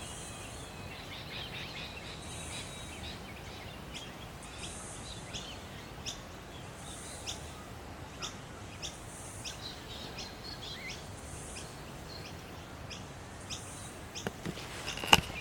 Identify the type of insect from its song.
cicada